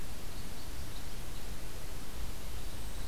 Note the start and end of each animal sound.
[0.00, 3.07] Red Crossbill (Loxia curvirostra)

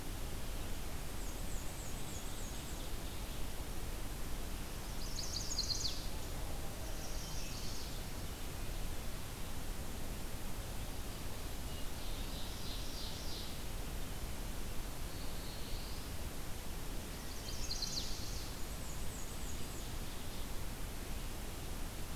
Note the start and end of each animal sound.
[0.98, 2.90] Black-and-white Warbler (Mniotilta varia)
[4.71, 6.15] Chestnut-sided Warbler (Setophaga pensylvanica)
[6.74, 8.11] Chestnut-sided Warbler (Setophaga pensylvanica)
[11.76, 13.60] Ovenbird (Seiurus aurocapilla)
[14.75, 16.07] Black-throated Blue Warbler (Setophaga caerulescens)
[17.11, 18.18] Chestnut-sided Warbler (Setophaga pensylvanica)
[18.39, 19.98] Black-and-white Warbler (Mniotilta varia)

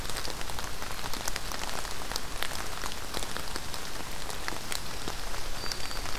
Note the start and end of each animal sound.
[4.65, 6.18] Black-throated Green Warbler (Setophaga virens)

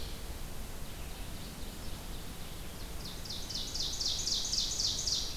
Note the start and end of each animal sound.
[0.89, 5.32] Ovenbird (Seiurus aurocapilla)

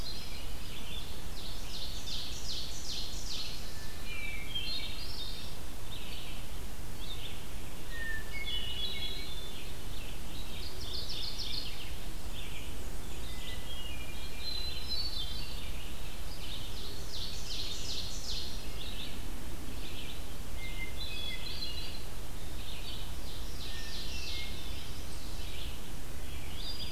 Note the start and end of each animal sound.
[0.00, 26.92] Red-eyed Vireo (Vireo olivaceus)
[0.37, 3.83] Ovenbird (Seiurus aurocapilla)
[4.02, 5.58] Hermit Thrush (Catharus guttatus)
[7.88, 9.49] Hermit Thrush (Catharus guttatus)
[10.32, 11.96] Mourning Warbler (Geothlypis philadelphia)
[11.86, 13.46] Black-and-white Warbler (Mniotilta varia)
[13.31, 15.78] Hermit Thrush (Catharus guttatus)
[16.16, 18.63] Ovenbird (Seiurus aurocapilla)
[20.39, 22.13] Hermit Thrush (Catharus guttatus)
[22.45, 24.61] Ovenbird (Seiurus aurocapilla)
[23.57, 25.05] Hermit Thrush (Catharus guttatus)

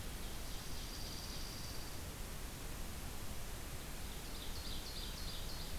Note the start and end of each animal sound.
[0.00, 1.52] Ovenbird (Seiurus aurocapilla)
[0.40, 2.04] Dark-eyed Junco (Junco hyemalis)
[3.99, 5.79] Ovenbird (Seiurus aurocapilla)

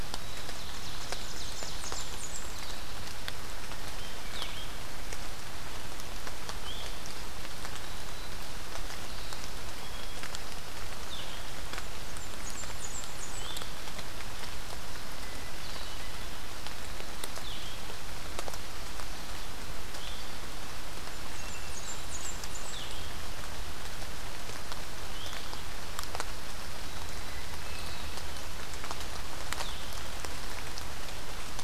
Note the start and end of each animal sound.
[0.00, 2.11] Ovenbird (Seiurus aurocapilla)
[1.09, 2.63] Blackburnian Warbler (Setophaga fusca)
[3.96, 4.74] Blue-headed Vireo (Vireo solitarius)
[6.53, 6.89] Blue-headed Vireo (Vireo solitarius)
[9.67, 10.49] Hermit Thrush (Catharus guttatus)
[10.86, 11.41] Blue-headed Vireo (Vireo solitarius)
[11.89, 13.83] Blackburnian Warbler (Setophaga fusca)
[13.17, 13.64] Blue-headed Vireo (Vireo solitarius)
[15.09, 16.38] Hermit Thrush (Catharus guttatus)
[17.30, 17.90] Blue-headed Vireo (Vireo solitarius)
[19.84, 20.26] Blue-headed Vireo (Vireo solitarius)
[20.92, 22.94] Blackburnian Warbler (Setophaga fusca)
[21.21, 22.60] Hermit Thrush (Catharus guttatus)
[22.63, 23.18] Blue-headed Vireo (Vireo solitarius)
[24.88, 25.48] Blue-headed Vireo (Vireo solitarius)
[26.73, 28.55] Hermit Thrush (Catharus guttatus)
[29.30, 29.84] Blue-headed Vireo (Vireo solitarius)

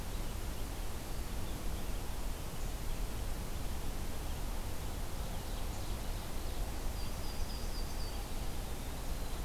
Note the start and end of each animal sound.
[4.56, 6.71] Ovenbird (Seiurus aurocapilla)
[6.82, 8.43] Yellow-rumped Warbler (Setophaga coronata)
[8.35, 9.45] Eastern Wood-Pewee (Contopus virens)

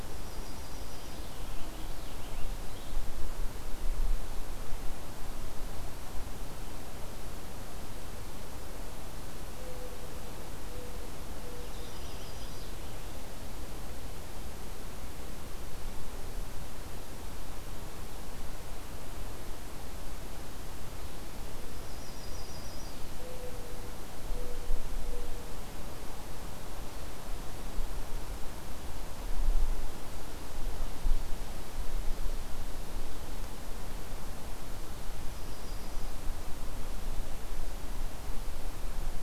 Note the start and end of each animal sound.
[0.00, 1.38] Yellow-rumped Warbler (Setophaga coronata)
[1.09, 2.99] Purple Finch (Haemorhous purpureus)
[8.47, 11.90] Mourning Dove (Zenaida macroura)
[11.43, 13.19] Purple Finch (Haemorhous purpureus)
[11.58, 12.75] Yellow-rumped Warbler (Setophaga coronata)
[21.74, 23.01] Yellow-rumped Warbler (Setophaga coronata)
[35.17, 36.13] Yellow-rumped Warbler (Setophaga coronata)

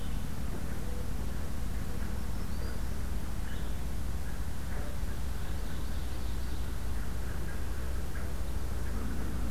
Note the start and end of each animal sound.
[0.00, 1.24] Mourning Dove (Zenaida macroura)
[1.90, 3.04] Black-throated Green Warbler (Setophaga virens)
[3.38, 3.81] Blue-headed Vireo (Vireo solitarius)
[5.09, 6.74] Ovenbird (Seiurus aurocapilla)

